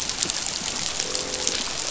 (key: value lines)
label: biophony, croak
recorder: SoundTrap 500